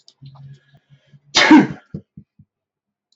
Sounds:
Sneeze